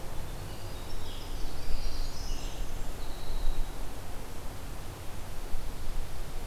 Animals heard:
Winter Wren (Troglodytes hiemalis)
Red-eyed Vireo (Vireo olivaceus)
Black-throated Blue Warbler (Setophaga caerulescens)

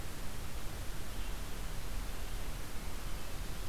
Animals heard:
Red-eyed Vireo (Vireo olivaceus)

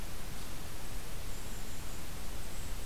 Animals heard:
Golden-crowned Kinglet (Regulus satrapa)

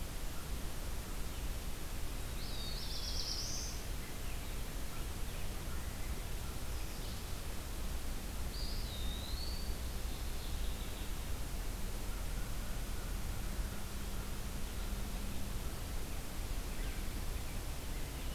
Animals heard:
Eastern Wood-Pewee (Contopus virens)
Black-throated Blue Warbler (Setophaga caerulescens)
Mourning Warbler (Geothlypis philadelphia)

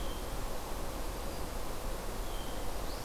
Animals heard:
Hermit Thrush (Catharus guttatus)

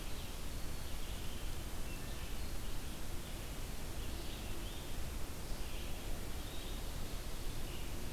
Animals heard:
Black-throated Green Warbler (Setophaga virens)
Red-eyed Vireo (Vireo olivaceus)

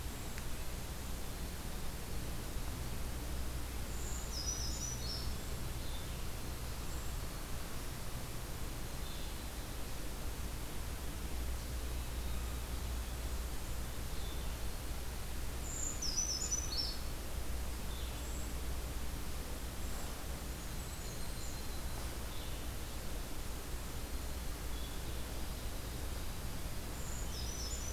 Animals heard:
Blackburnian Warbler (Setophaga fusca)
Brown Creeper (Certhia americana)
Blue-headed Vireo (Vireo solitarius)
Yellow-rumped Warbler (Setophaga coronata)

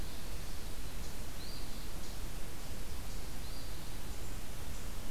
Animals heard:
Eastern Phoebe (Sayornis phoebe)

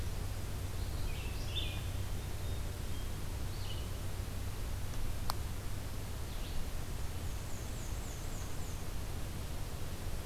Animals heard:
Hermit Thrush (Catharus guttatus)
Black-and-white Warbler (Mniotilta varia)
Red-eyed Vireo (Vireo olivaceus)

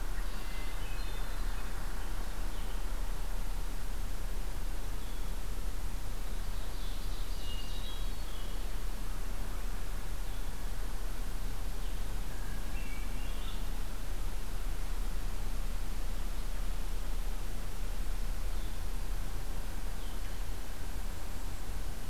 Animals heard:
Ovenbird (Seiurus aurocapilla)
Red-winged Blackbird (Agelaius phoeniceus)
Blue-headed Vireo (Vireo solitarius)
Hermit Thrush (Catharus guttatus)

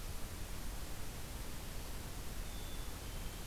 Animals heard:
Black-capped Chickadee (Poecile atricapillus)

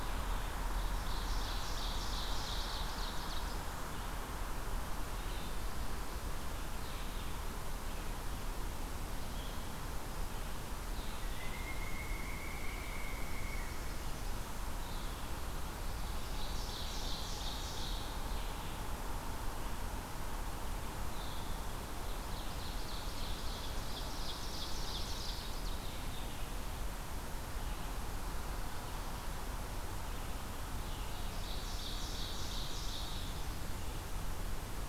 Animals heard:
Red-eyed Vireo (Vireo olivaceus)
Ovenbird (Seiurus aurocapilla)
Pileated Woodpecker (Dryocopus pileatus)

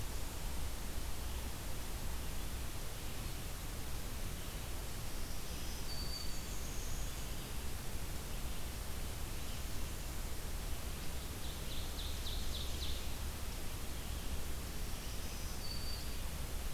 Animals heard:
Ovenbird (Seiurus aurocapilla)
unidentified call
Black-throated Green Warbler (Setophaga virens)

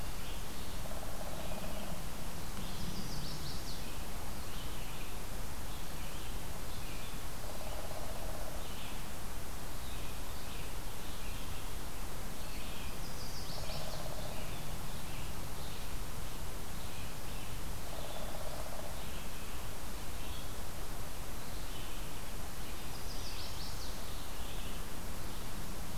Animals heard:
Chestnut-sided Warbler (Setophaga pensylvanica)
unknown woodpecker
Red-eyed Vireo (Vireo olivaceus)

